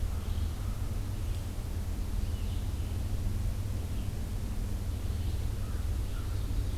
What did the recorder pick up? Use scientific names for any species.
Vireo olivaceus, Corvus brachyrhynchos, Seiurus aurocapilla